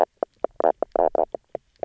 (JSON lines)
{"label": "biophony, knock croak", "recorder": "SoundTrap 300"}